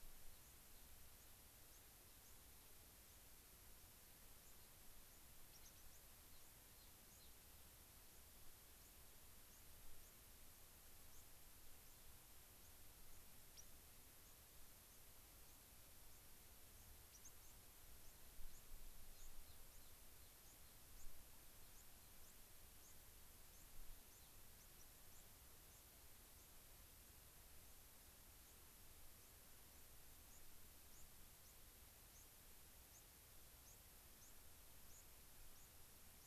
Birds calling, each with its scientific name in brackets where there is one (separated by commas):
unidentified bird, White-crowned Sparrow (Zonotrichia leucophrys), Gray-crowned Rosy-Finch (Leucosticte tephrocotis)